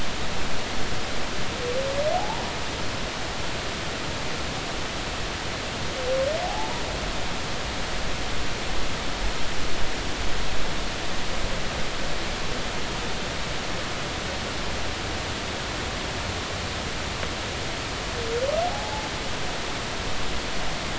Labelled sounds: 2.1	2.4	humpback whale, 0.80 to 0.96 kHz
6.4	6.8	humpback whale, 0.80 to 0.99 kHz
18.7	19.1	humpback whale, 0.80 to 0.90 kHz

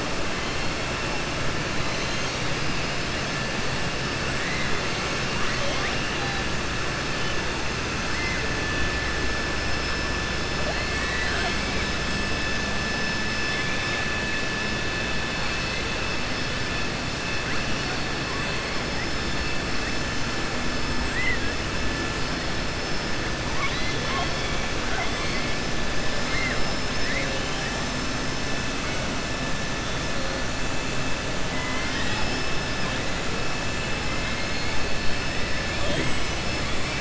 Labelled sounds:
26.2	26.6	killer whale, southern resident, 1.2 to 5.2 kHz
27.0	27.7	killer whale, southern resident, 1.7 to 3.8 kHz

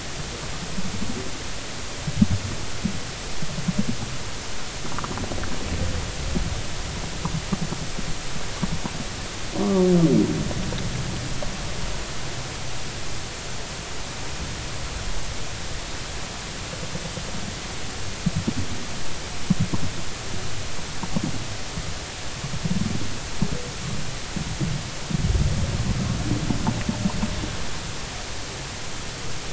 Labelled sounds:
9.6	9.9	humpback whale, 1.1 to 1.2 kHz

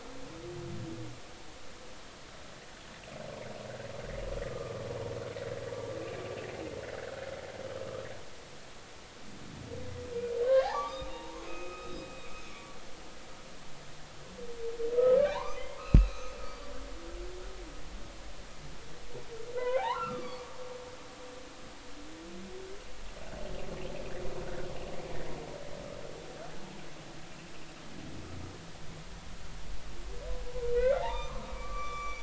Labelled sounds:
4.4	4.8	humpback whale, 1.0 to 1.2 kHz
7.0	7.2	humpback whale, 1.2 to 1.8 kHz
10.5	12.8	humpback whale, 0.80 to 3.9 kHz
15.2	16.7	humpback whale, 0.80 to 6.3 kHz
19.5	20.5	humpback whale, 0.80 to 4.7 kHz
30.8	32.2	humpback whale, 0.80 to 5.9 kHz

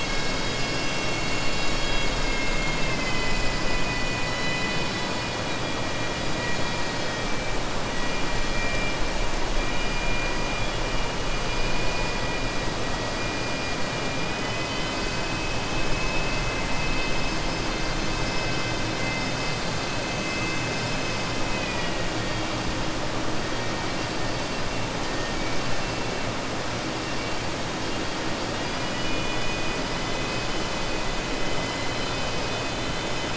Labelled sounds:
21.4	22.5	killer whale, southern resident, 1.8 to 5.3 kHz

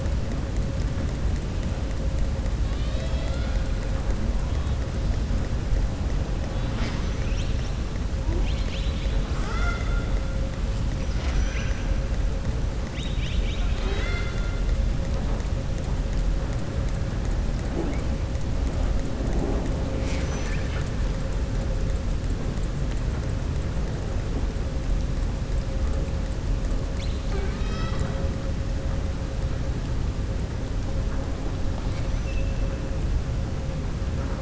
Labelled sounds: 6.5	7.8	killer whale, southern resident, 0.75 to 7.3 kHz
8.3	9.2	killer whale, southern resident, 2.2 to 5.1 kHz
11.0	11.8	killer whale, southern resident, 0.74 to 6.6 kHz
12.8	14.6	killer whale, southern resident, 0.48 to 6.5 kHz
31.8	32.6	killer whale, southern resident, 1.9 to 7.9 kHz

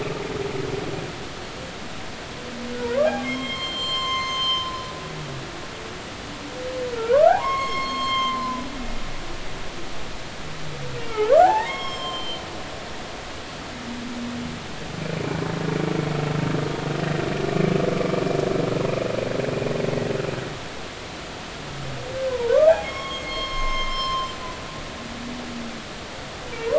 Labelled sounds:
2.8	4.7	humpback whale, 0.90 to 7.5 kHz
7.0	8.7	humpback whale, 0.80 to 6.6 kHz
11.0	12.4	humpback whale, 0.80 to 7.6 kHz
22.3	24.4	humpback whale, 0.86 to 6.5 kHz
24.9	25.2	humpback whale, 4.1 to 4.3 kHz

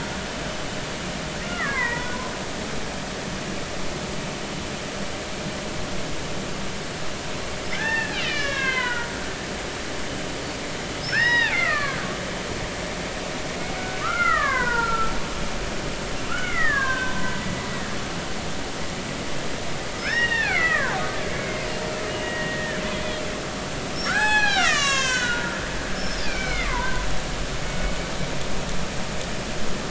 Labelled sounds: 1.5	2.1	killer whale, Bigg's (transient), 0.90 to 2.2 kHz
7.8	9.1	killer whale, Bigg's (transient), 0.90 to 6.5 kHz
11.0	12.1	killer whale, Bigg's (transient), 0.80 to 5.4 kHz
13.7	15.1	killer whale, Bigg's (transient), 0.86 to 2.3 kHz
16.3	17.4	killer whale, Bigg's (transient), 0.93 to 3.0 kHz
20.0	21.0	killer whale, Bigg's (transient), 0.80 to 5.6 kHz
21.3	21.7	killer whale, Bigg's (transient), 2.0 to 2.3 kHz
22.1	22.8	killer whale, Bigg's (transient), 1.5 to 2.9 kHz
24.1	27.1	killer whale, Bigg's (transient), 0.80 to 8.0 kHz

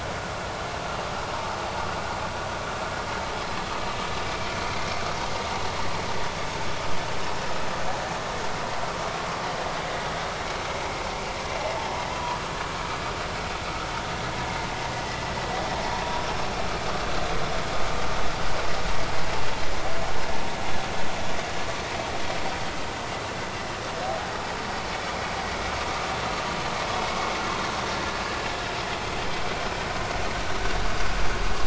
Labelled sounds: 4.3	4.6	vessel noise, 2.3 to 2.4 kHz

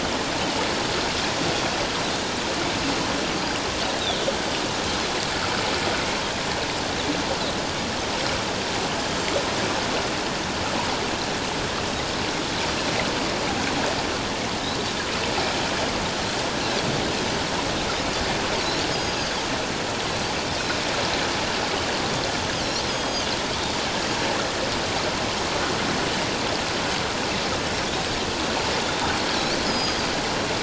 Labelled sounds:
18.9	19.4	Pacific white-sided dolphin, 4.6 to 6.6 kHz
22.9	23.3	Pacific white-sided dolphin, 3.1 to 8.0 kHz
29.7	30.0	Pacific white-sided dolphin, 4.8 to 5.1 kHz

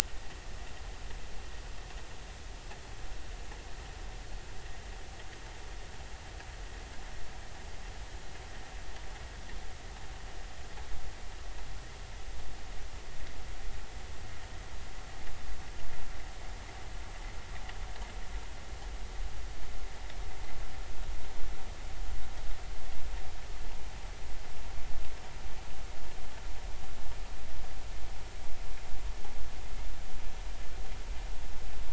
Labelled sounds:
0.0	0.4	vessel noise, 1.7 to 2.0 kHz

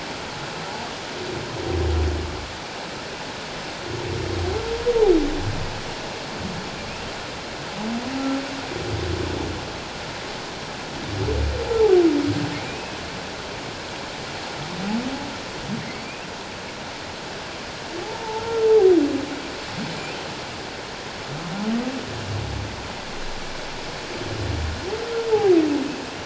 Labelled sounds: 12.7	13.0	humpback whale, 2.3 to 2.7 kHz
18.3	18.7	humpback whale, 1.3 to 1.4 kHz

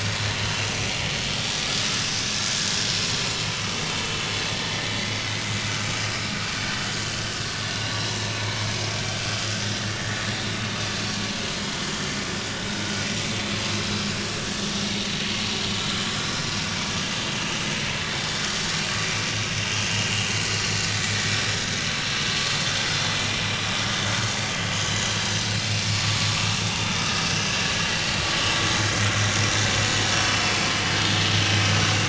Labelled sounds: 0.7	0.9	vessel noise, 5.8 to 6.1 kHz
3.7	4.2	vessel noise, 3.0 to 6.9 kHz
10.0	10.2	vessel noise, 1.6 to 1.9 kHz
11.0	11.2	vessel noise, 4.3 to 4.4 kHz
27.0	27.3	vessel noise, 1.2 to 1.3 kHz

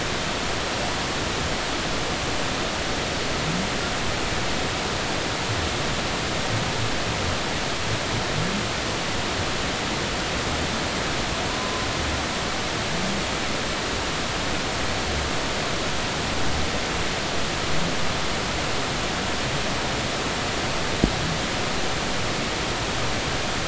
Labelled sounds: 11.6	11.9	humpback whale, 0.99 to 1.1 kHz

